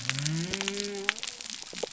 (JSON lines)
{"label": "biophony", "recorder": "SoundTrap 300"}